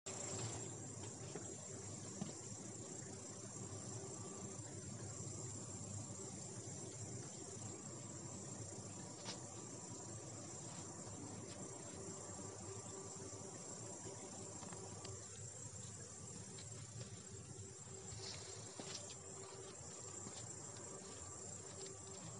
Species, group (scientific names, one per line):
Tettigonia cantans
Orthoptera